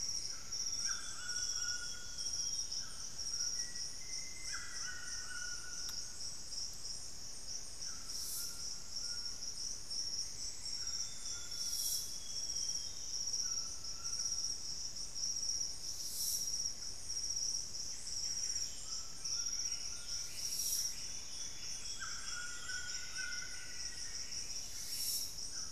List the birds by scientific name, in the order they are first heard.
Myrmelastes hyperythrus, Ramphastos tucanus, Cyanoloxia rothschildii, Formicarius analis, unidentified bird, Cantorchilus leucotis